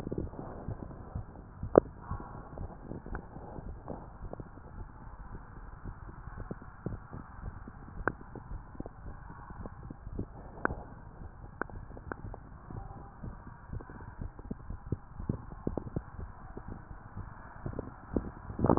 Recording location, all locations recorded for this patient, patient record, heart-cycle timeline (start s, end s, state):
tricuspid valve (TV)
aortic valve (AV)+pulmonary valve (PV)+tricuspid valve (TV)+mitral valve (MV)
#Age: nan
#Sex: Female
#Height: nan
#Weight: nan
#Pregnancy status: True
#Murmur: Absent
#Murmur locations: nan
#Most audible location: nan
#Systolic murmur timing: nan
#Systolic murmur shape: nan
#Systolic murmur grading: nan
#Systolic murmur pitch: nan
#Systolic murmur quality: nan
#Diastolic murmur timing: nan
#Diastolic murmur shape: nan
#Diastolic murmur grading: nan
#Diastolic murmur pitch: nan
#Diastolic murmur quality: nan
#Outcome: Normal
#Campaign: 2015 screening campaign
0.00	8.21	unannotated
8.21	8.49	diastole
8.49	8.64	S1
8.64	8.76	systole
8.76	8.92	S2
8.92	9.03	diastole
9.03	9.18	S1
9.18	9.26	systole
9.26	9.36	S2
9.36	9.56	diastole
9.56	9.70	S1
9.70	9.80	systole
9.80	9.92	S2
9.92	10.08	diastole
10.08	10.26	S1
10.26	10.36	systole
10.36	10.46	S2
10.46	10.64	diastole
10.64	10.82	S1
10.82	10.96	systole
10.96	11.04	S2
11.04	11.20	diastole
11.20	11.32	S1
11.32	11.42	systole
11.42	11.52	S2
11.52	11.74	diastole
11.74	11.88	S1
11.88	12.04	systole
12.04	12.16	S2
12.16	12.28	diastole
12.28	12.42	S1
12.42	12.54	systole
12.54	12.60	S2
12.60	12.76	diastole
12.76	12.87	S1
12.87	12.97	systole
12.97	13.08	S2
13.08	13.22	diastole
13.22	13.36	S1
13.36	13.46	systole
13.46	13.56	S2
13.56	13.72	diastole
13.72	13.86	S1
13.86	14.00	systole
14.00	14.12	S2
14.12	14.26	diastole
14.26	14.38	S1
14.38	14.46	systole
14.46	14.56	S2
14.56	14.68	diastole
14.68	14.80	S1
14.80	14.88	systole
14.88	15.02	S2
15.02	15.18	diastole
15.18	15.36	S1
15.36	15.44	systole
15.44	15.54	S2
15.54	15.68	diastole
15.68	15.82	S1
15.82	15.94	systole
15.94	16.06	S2
16.06	16.20	diastole
16.20	16.32	S1
16.32	16.44	systole
16.44	16.54	S2
16.54	16.68	diastole
16.68	16.78	S1
16.78	16.90	systole
16.90	17.02	S2
17.02	17.16	diastole
17.16	17.28	S1
17.28	17.38	systole
17.38	17.46	S2
17.46	17.62	diastole
17.62	17.76	S1
17.76	17.86	systole
17.86	17.94	S2
17.94	18.14	diastole
18.14	18.30	S1
18.30	18.42	systole
18.42	18.50	S2
18.50	18.64	diastole
18.64	18.78	S1